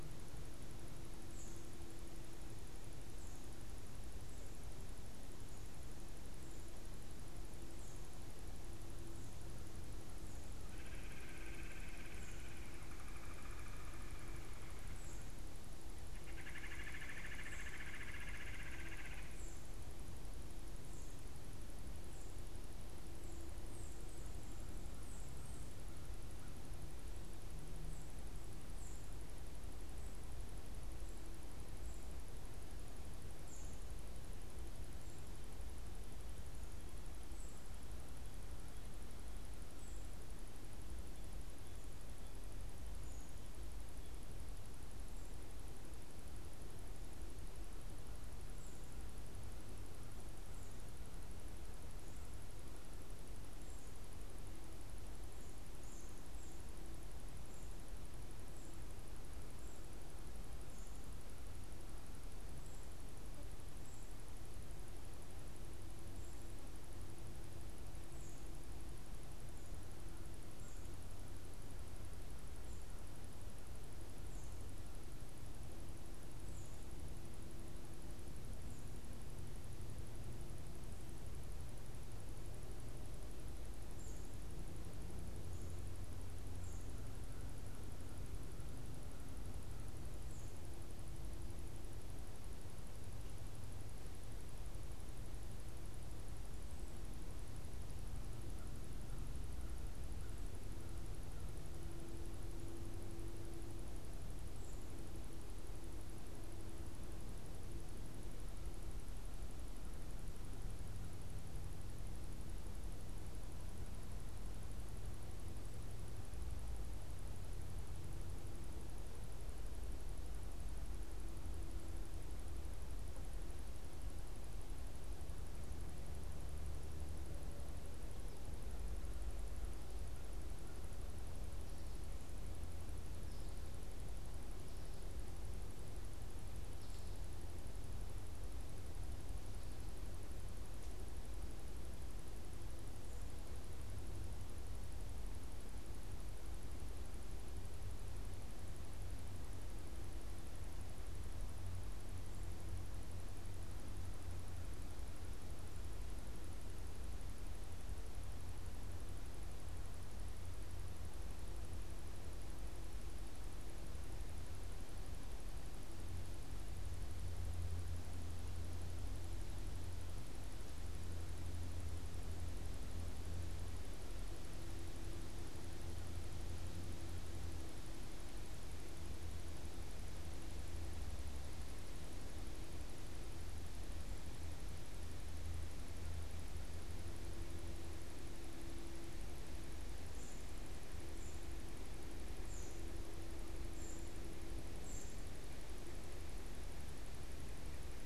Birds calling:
Red-bellied Woodpecker (Melanerpes carolinus), unidentified bird

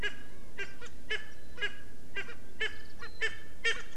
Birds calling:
Erckel's Francolin (Pternistis erckelii)

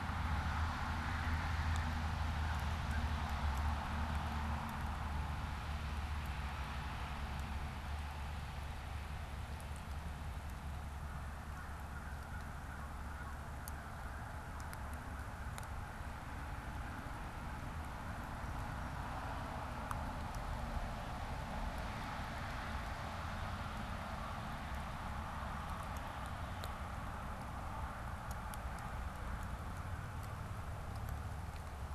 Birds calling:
American Crow (Corvus brachyrhynchos)

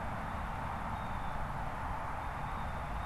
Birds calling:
Blue Jay (Cyanocitta cristata)

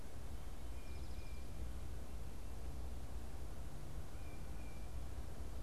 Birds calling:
Tufted Titmouse (Baeolophus bicolor)

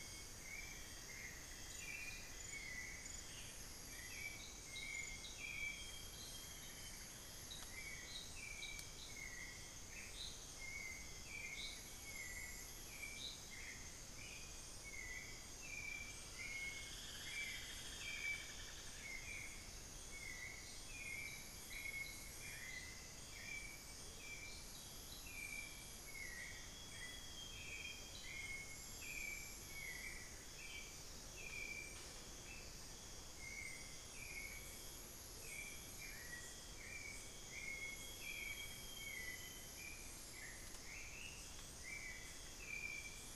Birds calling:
Amazonian Grosbeak (Cyanoloxia rothschildii), unidentified bird, Hauxwell's Thrush (Turdus hauxwelli), Cinnamon-throated Woodcreeper (Dendrexetastes rufigula), Amazonian Motmot (Momotus momota), Black-faced Antthrush (Formicarius analis)

